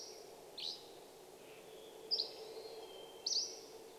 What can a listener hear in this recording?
Steller's Jay call, Dusky Flycatcher song, Red-breasted Nuthatch song, airplane, Hermit Thrush call, Hermit Thrush song